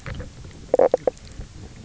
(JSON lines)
{"label": "biophony, knock croak", "recorder": "SoundTrap 300"}